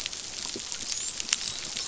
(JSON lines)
{"label": "biophony, dolphin", "recorder": "SoundTrap 500"}